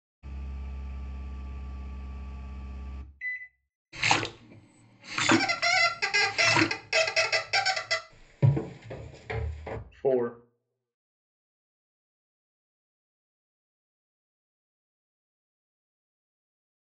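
First, at 0.22 seconds, a quiet engine can be heard. Then, at 3.19 seconds, there is the sound of a microwave oven. Next, at 3.92 seconds, there is splashing. Meanwhile, at 5.17 seconds, squeaking is heard. Afterwards, at 8.09 seconds, footsteps on a wooden floor can be heard. Later, at 10.03 seconds, someone says "Four."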